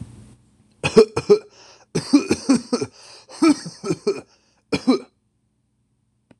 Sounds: Cough